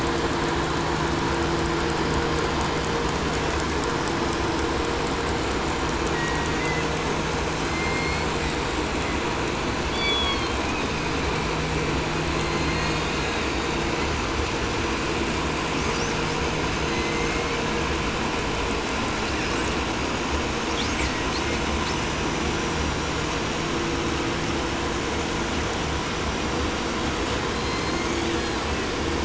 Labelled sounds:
6.1	7.1	killer whale, southern resident, 1.4 to 5.0 kHz
7.5	9.2	killer whale, southern resident, 1.5 to 6.3 kHz
9.8	11.3	killer whale, 2.0 to 5.2 kHz
12.2	14.1	killer whale, southern resident, J pod, call S01, 1.1 to 7.8 kHz
15.6	16.5	killer whale, 4.2 to 7.1 kHz
16.8	17.9	killer whale, southern resident, J pod, call S01, 1.2 to 8.0 kHz
19.1	19.9	killer whale, 3.3 to 8.0 kHz
20.7	22.0	killer whale, 1.7 to 8.0 kHz
20.9	21.6	killer whale, southern resident, 1.0 to 3.4 kHz
27.4	29.0	killer whale, southern resident, J pod, call S01, 0.81 to 7.7 kHz

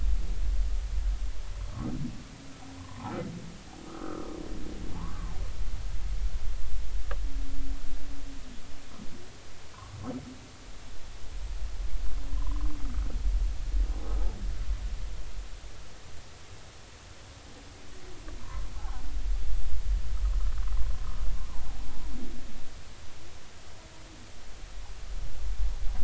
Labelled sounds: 2.7	3.1	humpback whale, 0.80 to 1.2 kHz
3.9	4.3	humpback whale, 1.1 to 1.4 kHz
5.0	5.3	humpback whale, 0.80 to 1.3 kHz
9.7	10.0	humpback whale, 0.93 to 1.3 kHz
12.3	12.7	humpback whale, 0.93 to 1.2 kHz
18.8	19.0	humpback whale, 0.80 to 0.93 kHz

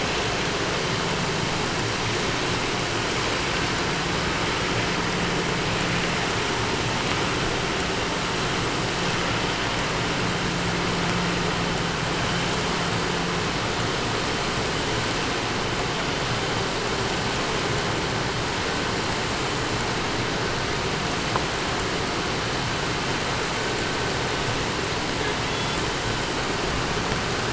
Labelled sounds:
25.0	26.0	killer whale, southern resident, call S18, 0.80 to 8.0 kHz

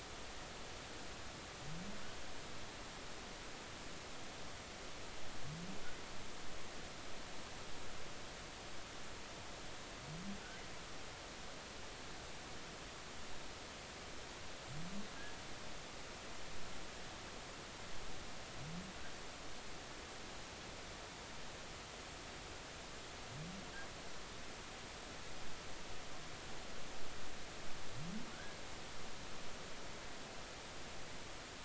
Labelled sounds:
28.3	28.6	humpback whale, 1.4 to 1.7 kHz

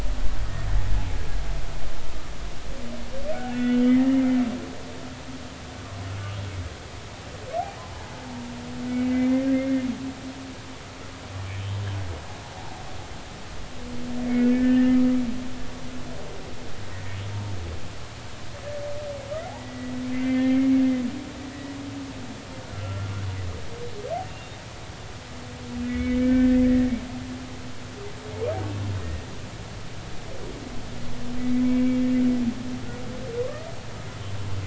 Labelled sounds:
3.3	4.4	humpback whale, 1.4 to 3.3 kHz
9.1	9.8	humpback whale, 2.0 to 2.2 kHz
12.5	12.8	humpback whale, 0.80 to 0.96 kHz
14.4	15.0	humpback whale, 1.7 to 1.9 kHz
16.8	17.2	humpback whale, 1.8 to 2.0 kHz
19.6	20.7	humpback whale, 1.9 to 2.4 kHz
22.6	23.1	humpback whale, 1.3 to 1.5 kHz
24.2	24.5	humpback whale, 2.7 to 2.8 kHz
25.9	26.9	humpback whale, 1.7 to 2.4 kHz
29.0	29.3	humpback whale, 1.8 to 2.0 kHz
31.4	32.0	humpback whale, 2.0 to 2.3 kHz

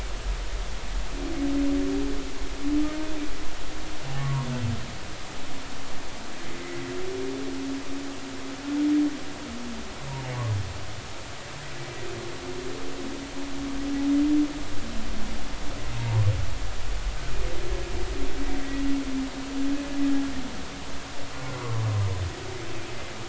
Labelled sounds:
4.2	4.5	humpback whale, 0.90 to 1.2 kHz
21.6	21.8	humpback whale, 0.99 to 1.2 kHz

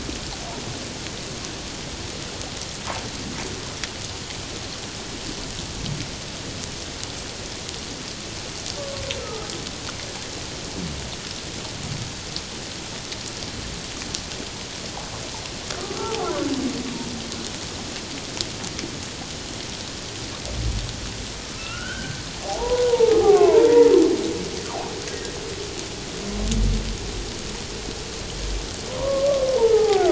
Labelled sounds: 9.2	9.5	humpback whale, 1.2 to 1.4 kHz
15.8	16.3	humpback whale, 0.78 to 1.2 kHz
21.5	23.9	humpback whale, 0.78 to 3.2 kHz
28.9	30.1	humpback whale, 0.78 to 1.4 kHz

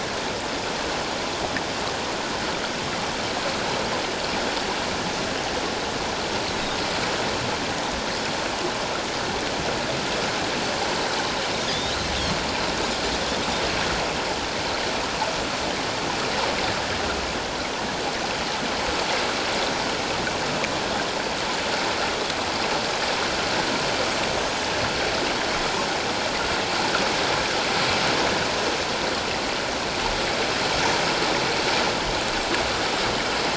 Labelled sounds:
11.7	12.0	Pacific white-sided dolphin, 3.2 to 3.8 kHz

